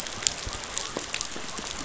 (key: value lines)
label: biophony
recorder: SoundTrap 500